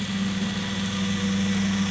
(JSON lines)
{"label": "anthrophony, boat engine", "recorder": "SoundTrap 500"}